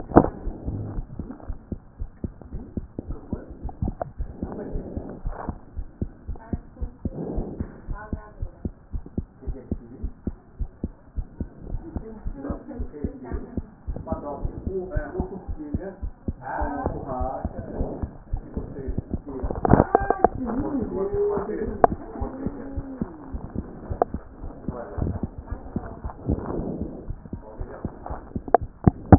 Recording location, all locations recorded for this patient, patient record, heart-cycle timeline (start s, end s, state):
aortic valve (AV)
aortic valve (AV)+pulmonary valve (PV)+tricuspid valve (TV)+mitral valve (MV)
#Age: Child
#Sex: Female
#Height: 123.0 cm
#Weight: 25.3 kg
#Pregnancy status: False
#Murmur: Absent
#Murmur locations: nan
#Most audible location: nan
#Systolic murmur timing: nan
#Systolic murmur shape: nan
#Systolic murmur grading: nan
#Systolic murmur pitch: nan
#Systolic murmur quality: nan
#Diastolic murmur timing: nan
#Diastolic murmur shape: nan
#Diastolic murmur grading: nan
#Diastolic murmur pitch: nan
#Diastolic murmur quality: nan
#Outcome: Normal
#Campaign: 2014 screening campaign
0.00	7.68	unannotated
7.68	7.88	diastole
7.88	7.98	S1
7.98	8.12	systole
8.12	8.22	S2
8.22	8.40	diastole
8.40	8.50	S1
8.50	8.64	systole
8.64	8.72	S2
8.72	8.92	diastole
8.92	9.02	S1
9.02	9.16	systole
9.16	9.26	S2
9.26	9.46	diastole
9.46	9.58	S1
9.58	9.70	systole
9.70	9.80	S2
9.80	10.02	diastole
10.02	10.12	S1
10.12	10.26	systole
10.26	10.36	S2
10.36	10.58	diastole
10.58	10.70	S1
10.70	10.82	systole
10.82	10.92	S2
10.92	11.16	diastole
11.16	11.26	S1
11.26	11.40	systole
11.40	11.48	S2
11.48	11.70	diastole
11.70	11.82	S1
11.82	11.94	systole
11.94	12.04	S2
12.04	12.24	diastole
12.24	12.36	S1
12.36	12.48	systole
12.48	12.58	S2
12.58	12.76	diastole
12.76	12.88	S1
12.88	13.02	systole
13.02	13.12	S2
13.12	13.32	diastole
13.32	13.42	S1
13.42	13.56	systole
13.56	13.66	S2
13.66	13.88	diastole
13.88	13.98	S1
13.98	14.10	systole
14.10	29.18	unannotated